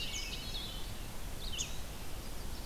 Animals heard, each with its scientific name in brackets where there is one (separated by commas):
Indigo Bunting (Passerina cyanea), Hermit Thrush (Catharus guttatus), Red-eyed Vireo (Vireo olivaceus), Eastern Wood-Pewee (Contopus virens)